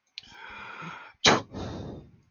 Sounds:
Sneeze